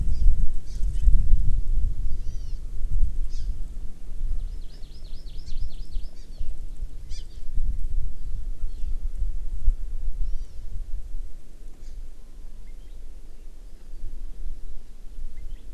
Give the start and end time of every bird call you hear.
[0.06, 0.26] Hawaii Amakihi (Chlorodrepanis virens)
[0.66, 1.06] Hawaii Amakihi (Chlorodrepanis virens)
[2.06, 2.56] Hawaii Amakihi (Chlorodrepanis virens)
[3.26, 3.46] Hawaii Amakihi (Chlorodrepanis virens)
[4.36, 6.56] Hawaii Amakihi (Chlorodrepanis virens)
[7.06, 7.46] Hawaii Amakihi (Chlorodrepanis virens)
[8.66, 8.86] Hawaii Amakihi (Chlorodrepanis virens)
[10.26, 10.66] Hawaii Amakihi (Chlorodrepanis virens)
[11.76, 11.96] Hawaii Amakihi (Chlorodrepanis virens)
[12.66, 12.96] Palila (Loxioides bailleui)
[15.36, 15.66] Palila (Loxioides bailleui)

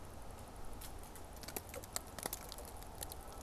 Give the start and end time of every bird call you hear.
[0.00, 3.42] Canada Goose (Branta canadensis)

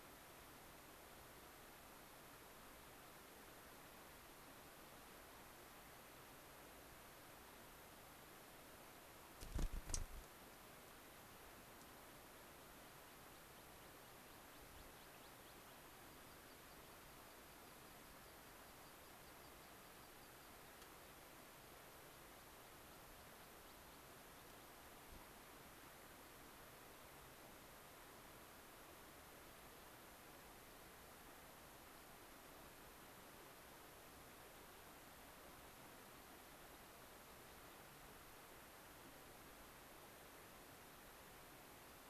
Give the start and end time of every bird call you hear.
[9.26, 10.16] unidentified bird
[12.16, 20.76] American Pipit (Anthus rubescens)

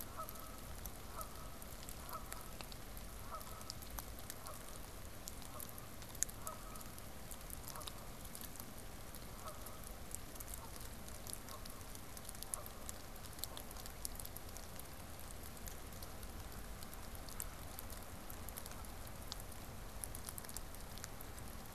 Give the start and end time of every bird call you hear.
[0.00, 13.47] Canada Goose (Branta canadensis)

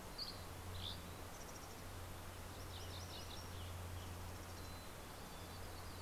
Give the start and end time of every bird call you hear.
[0.00, 1.20] Dusky Flycatcher (Empidonax oberholseri)
[0.80, 2.30] Mountain Chickadee (Poecile gambeli)
[1.90, 4.30] Western Tanager (Piranga ludoviciana)
[2.10, 3.70] MacGillivray's Warbler (Geothlypis tolmiei)
[4.20, 6.01] Yellow-rumped Warbler (Setophaga coronata)
[4.30, 5.90] Mountain Chickadee (Poecile gambeli)

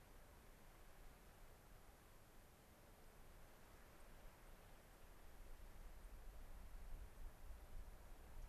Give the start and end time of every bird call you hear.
[3.97, 4.07] White-crowned Sparrow (Zonotrichia leucophrys)
[4.37, 4.57] White-crowned Sparrow (Zonotrichia leucophrys)
[4.87, 4.97] White-crowned Sparrow (Zonotrichia leucophrys)
[5.97, 6.17] White-crowned Sparrow (Zonotrichia leucophrys)
[7.07, 7.27] White-crowned Sparrow (Zonotrichia leucophrys)
[8.37, 8.47] White-crowned Sparrow (Zonotrichia leucophrys)

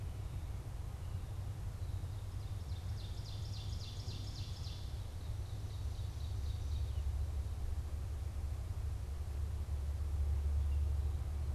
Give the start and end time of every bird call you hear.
[1.43, 7.33] Ovenbird (Seiurus aurocapilla)

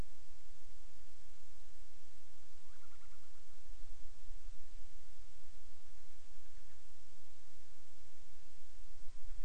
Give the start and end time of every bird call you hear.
[2.54, 3.54] Band-rumped Storm-Petrel (Hydrobates castro)

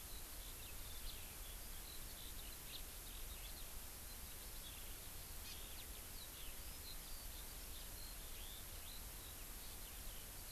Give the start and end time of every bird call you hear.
[0.00, 10.51] Eurasian Skylark (Alauda arvensis)

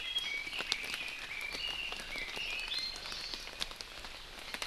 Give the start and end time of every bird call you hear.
[0.00, 3.00] Red-billed Leiothrix (Leiothrix lutea)
[2.60, 3.00] Iiwi (Drepanis coccinea)
[3.00, 3.50] Hawaii Amakihi (Chlorodrepanis virens)

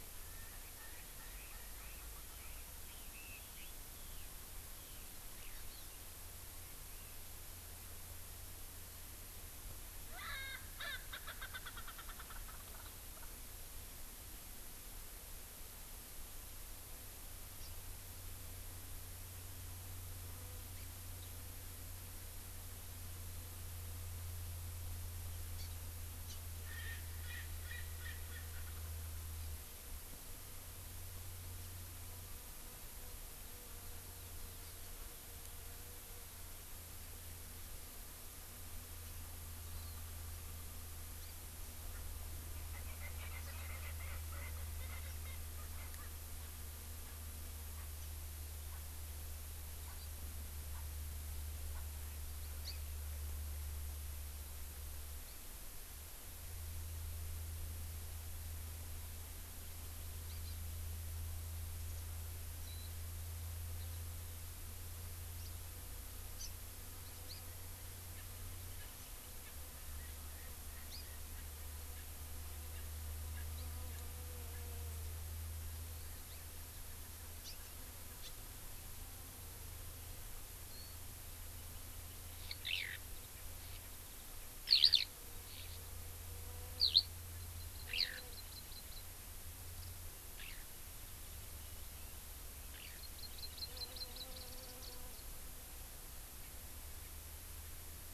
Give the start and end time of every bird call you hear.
[0.56, 2.66] Erckel's Francolin (Pternistis erckelii)
[0.86, 5.66] Eurasian Skylark (Alauda arvensis)
[10.16, 13.26] Erckel's Francolin (Pternistis erckelii)
[25.56, 25.66] Hawaii Amakihi (Chlorodrepanis virens)
[26.26, 26.36] Hawaii Amakihi (Chlorodrepanis virens)
[26.66, 28.66] Erckel's Francolin (Pternistis erckelii)
[39.76, 39.96] Hawaii Amakihi (Chlorodrepanis virens)
[42.76, 45.36] Erckel's Francolin (Pternistis erckelii)
[47.76, 47.86] Erckel's Francolin (Pternistis erckelii)
[48.66, 48.76] Erckel's Francolin (Pternistis erckelii)
[49.86, 49.96] Erckel's Francolin (Pternistis erckelii)
[50.76, 50.86] Erckel's Francolin (Pternistis erckelii)
[51.76, 51.86] Erckel's Francolin (Pternistis erckelii)
[52.66, 52.76] House Finch (Haemorhous mexicanus)
[62.66, 62.86] Warbling White-eye (Zosterops japonicus)
[66.36, 66.46] Hawaii Amakihi (Chlorodrepanis virens)
[67.26, 67.36] Hawaii Amakihi (Chlorodrepanis virens)
[68.16, 68.26] Erckel's Francolin (Pternistis erckelii)
[68.76, 68.86] Erckel's Francolin (Pternistis erckelii)
[69.46, 69.56] Erckel's Francolin (Pternistis erckelii)
[69.96, 71.46] Erckel's Francolin (Pternistis erckelii)
[70.86, 71.06] Hawaii Amakihi (Chlorodrepanis virens)
[72.76, 72.86] Erckel's Francolin (Pternistis erckelii)
[73.36, 73.46] Erckel's Francolin (Pternistis erckelii)
[77.36, 77.56] House Finch (Haemorhous mexicanus)
[82.66, 82.96] Eurasian Skylark (Alauda arvensis)
[84.66, 85.06] Eurasian Skylark (Alauda arvensis)
[86.76, 87.06] Eurasian Skylark (Alauda arvensis)
[87.46, 89.06] Hawaii Amakihi (Chlorodrepanis virens)
[87.86, 88.16] Eurasian Skylark (Alauda arvensis)
[90.36, 90.66] Eurasian Skylark (Alauda arvensis)
[92.76, 92.96] Eurasian Skylark (Alauda arvensis)
[92.76, 94.26] Hawaii Amakihi (Chlorodrepanis virens)

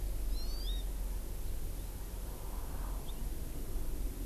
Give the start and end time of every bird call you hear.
[0.29, 0.89] Hawaii Amakihi (Chlorodrepanis virens)

